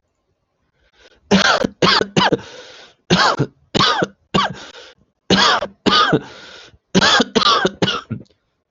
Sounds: Cough